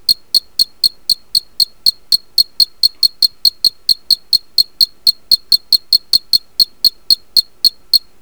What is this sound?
Loxoblemmus arietulus, an orthopteran